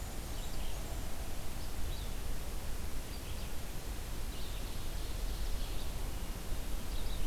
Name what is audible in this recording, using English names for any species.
Blackburnian Warbler, Red-eyed Vireo, Ovenbird